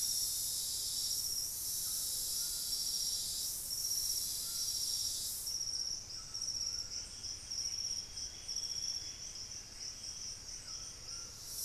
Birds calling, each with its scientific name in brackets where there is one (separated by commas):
White-throated Toucan (Ramphastos tucanus), Buff-breasted Wren (Cantorchilus leucotis)